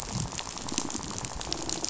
{"label": "biophony, rattle", "recorder": "SoundTrap 500"}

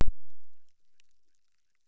{"label": "biophony, chorus", "recorder": "SoundTrap 600"}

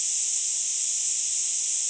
{"label": "ambient", "recorder": "HydroMoth"}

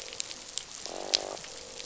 {"label": "biophony, croak", "recorder": "SoundTrap 500"}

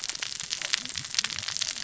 {"label": "biophony, cascading saw", "recorder": "SoundTrap 600 or HydroMoth"}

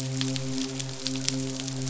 {"label": "biophony, midshipman", "recorder": "SoundTrap 500"}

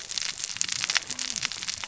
{"label": "biophony, cascading saw", "recorder": "SoundTrap 600 or HydroMoth"}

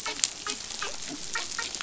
{"label": "biophony, dolphin", "recorder": "SoundTrap 500"}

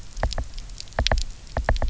{"label": "biophony, knock", "recorder": "SoundTrap 300"}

